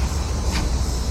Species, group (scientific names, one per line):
Megatibicen dealbatus
Cicadidae